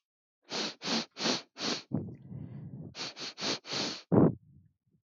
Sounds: Sniff